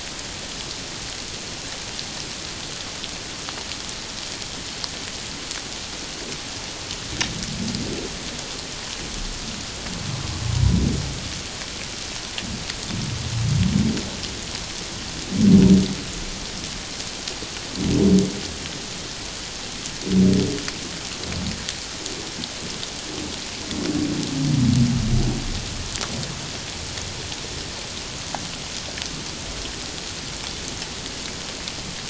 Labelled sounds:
10.5	10.8	humpback whale, 0.91 to 1.0 kHz

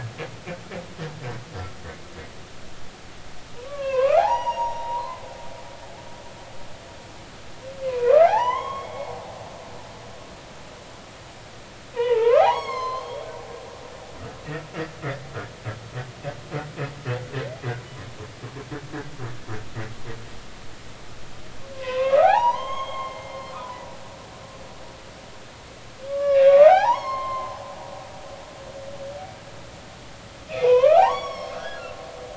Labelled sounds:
3.6	5.2	humpback whale, 0.80 to 6.8 kHz
7.9	9.1	humpback whale, 0.80 to 3.4 kHz
11.9	13.2	humpback whale, 0.80 to 7.8 kHz
21.7	23.4	humpback whale, 0.80 to 6.6 kHz
26.1	27.5	humpback whale, 0.80 to 6.6 kHz
30.5	31.8	humpback whale, 0.80 to 6.8 kHz

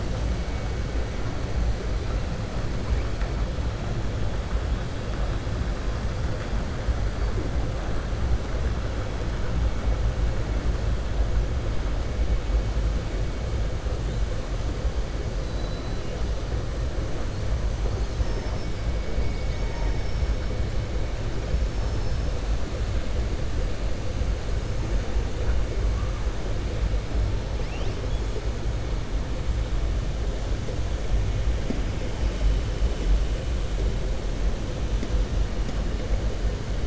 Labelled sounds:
17.9	18.7	killer whale, southern resident, 4.5 to 6.3 kHz

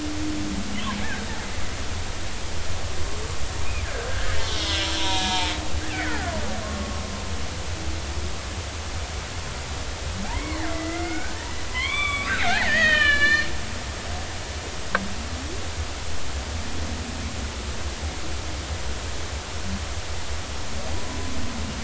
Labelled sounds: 1.0	1.3	killer whale, Bigg's (transient), 1.5 to 1.9 kHz
4.1	5.6	killer whale, Bigg's (transient), 0.83 to 3.9 kHz
6.0	6.9	killer whale, Bigg's (transient), 1.0 to 2.1 kHz
10.3	11.4	killer whale, Bigg's (transient), 1.4 to 2.3 kHz
11.7	13.5	killer whale, Bigg's (transient), 0.80 to 7.8 kHz
20.9	21.2	killer whale, Bigg's (transient), 0.93 to 1.1 kHz

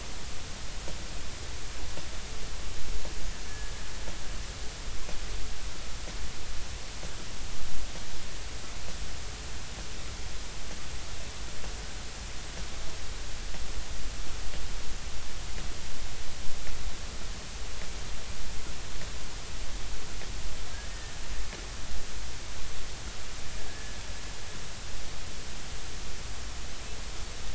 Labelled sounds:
3.5	3.7	killer whale, Bigg's (transient), 1.6 to 1.8 kHz
20.9	21.1	killer whale, Bigg's (transient), 1.7 to 1.9 kHz
23.7	24.0	killer whale, Bigg's (transient), 1.6 to 1.8 kHz

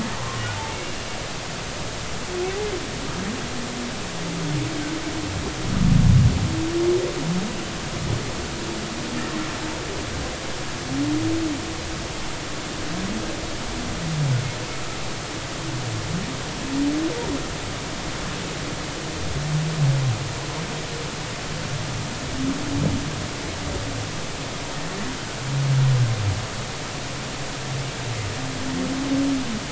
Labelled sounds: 0.5	1.0	humpback whale, 0.83 to 2.8 kHz

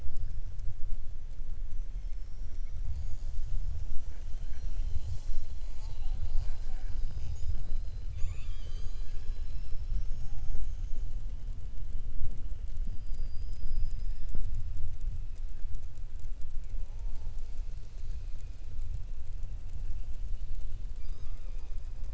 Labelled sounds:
2.1	2.7	killer whale, southern resident, 5.3 to 5.9 kHz

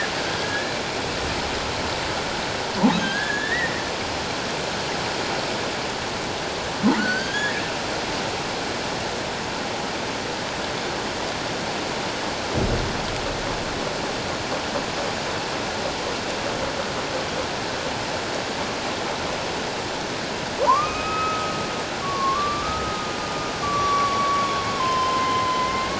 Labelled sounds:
3.0	3.8	humpback whale, 1.5 to 2.0 kHz
7.0	7.6	humpback whale, 1.4 to 4.8 kHz
20.6	23.1	humpback whale, 0.84 to 2.6 kHz
23.6	25.9	humpback whale, 0.94 to 5.8 kHz

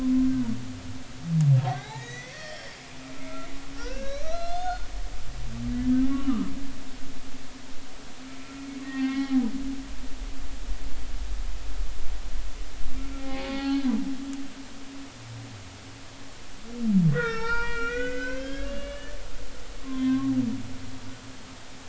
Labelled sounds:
1.6	2.8	humpback whale, 0.80 to 5.7 kHz
3.8	4.9	humpback whale, 1.2 to 6.0 kHz
6.1	6.5	humpback whale, 0.99 to 1.4 kHz
8.8	9.5	humpback whale, 0.80 to 3.6 kHz
13.2	13.9	humpback whale, 0.80 to 4.5 kHz
17.1	19.1	humpback whale, 0.83 to 5.8 kHz
19.8	20.3	humpback whale, 0.99 to 1.2 kHz

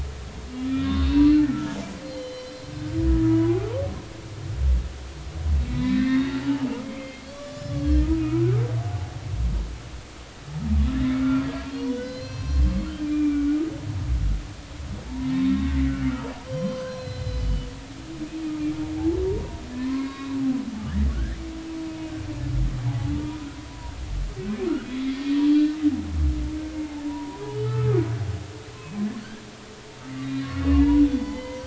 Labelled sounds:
0.7	1.5	humpback whale, 1.8 to 4.3 kHz
2.0	3.6	humpback whale, 0.93 to 5.2 kHz
5.7	6.4	humpback whale, 1.7 to 4.0 kHz
6.8	8.5	humpback whale, 1.1 to 7.0 kHz
11.4	13.6	humpback whale, 1.1 to 6.1 kHz
15.0	15.8	humpback whale, 0.80 to 2.0 kHz
16.5	17.7	humpback whale, 0.99 to 5.8 kHz
19.3	20.4	humpback whale, 0.90 to 3.9 kHz
21.1	21.4	humpback whale, 1.3 to 2.0 kHz
22.9	23.9	humpback whale, 0.80 to 1.0 kHz
24.8	25.8	humpback whale, 1.8 to 4.0 kHz
26.8	28.0	humpback whale, 0.80 to 1.4 kHz
30.1	31.6	humpback whale, 0.80 to 4.5 kHz

